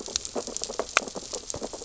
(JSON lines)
{"label": "biophony, sea urchins (Echinidae)", "recorder": "SoundTrap 600 or HydroMoth"}